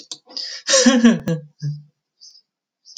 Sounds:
Laughter